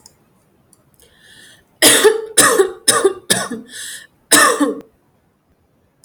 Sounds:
Cough